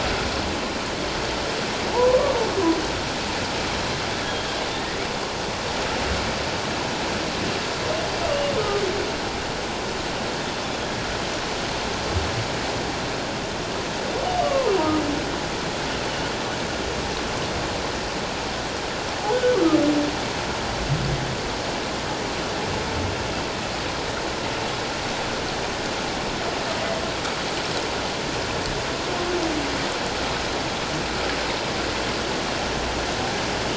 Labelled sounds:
1.9	2.4	humpback whale, 0.81 to 1.2 kHz
4.8	5.0	humpback whale, 1.8 to 2.0 kHz
8.6	8.8	humpback whale, 1.2 to 1.3 kHz
14.4	14.7	humpback whale, 0.91 to 1.2 kHz

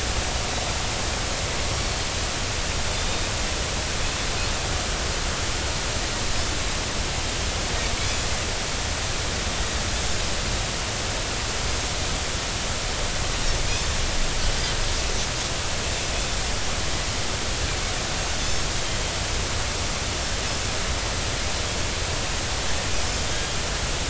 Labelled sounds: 2.9	3.3	Pacific white-sided dolphin, 3.5 to 3.8 kHz
8.0	8.2	Pacific white-sided dolphin, 3.3 to 3.5 kHz

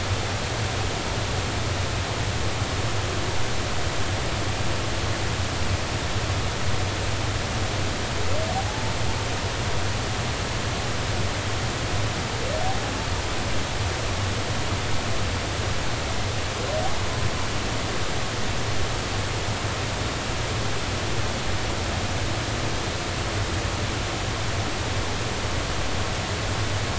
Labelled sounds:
8.7	8.9	humpback whale, 0.80 to 0.96 kHz

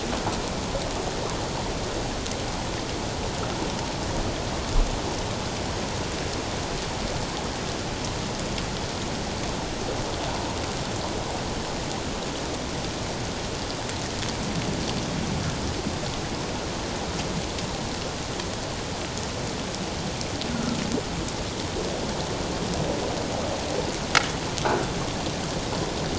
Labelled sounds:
20.5	20.8	humpback whale, 1.2 to 1.5 kHz

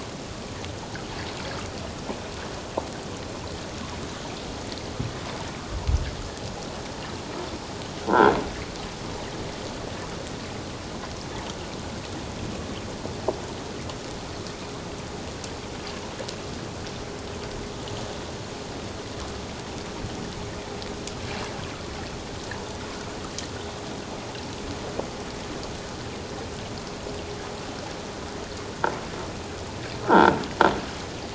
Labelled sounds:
8.1	8.3	croaking sound likely from a nearby submerged object, 1.3 to 1.7 kHz
30.1	30.4	croaking sound likely from a nearby submerged object, 0.81 to 1.7 kHz

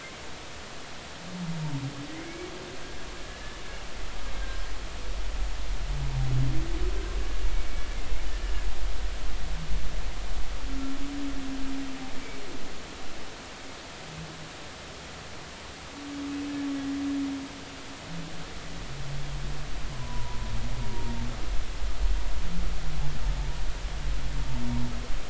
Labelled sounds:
2.1	2.5	humpback whale, 1.9 to 2.3 kHz
20.0	21.1	humpback whale, 0.90 to 1.1 kHz

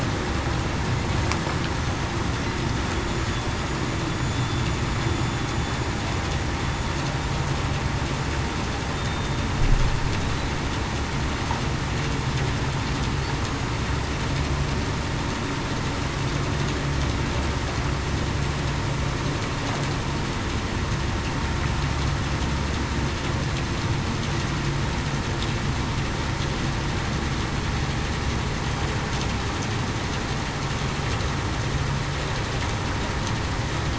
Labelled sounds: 4.3	4.6	vessel noise, 3.47 to 3.52 kHz

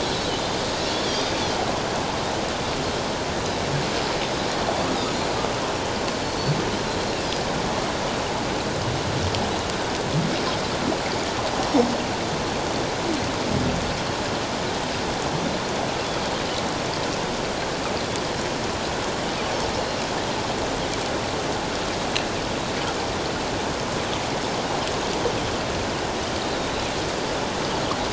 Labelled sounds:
1.1	1.3	Pacific white-sided dolphin, 4.7 to 5.0 kHz
5.0	5.3	Pacific white-sided dolphin, 6.9 to 7.1 kHz
19.7	20.0	Pacific white-sided dolphin, 4.1 to 4.3 kHz
26.5	26.7	Pacific white-sided dolphin, 3.7 to 4.1 kHz

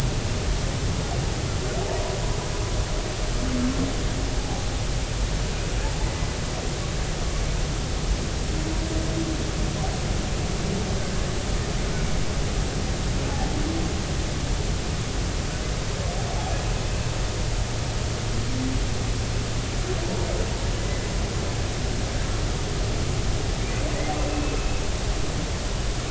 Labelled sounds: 4.4	4.6	humpback whale, 0.80 to 0.90 kHz
24.3	24.8	humpback whale, 2.5 to 2.7 kHz

